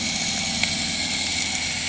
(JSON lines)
{"label": "anthrophony, boat engine", "recorder": "HydroMoth"}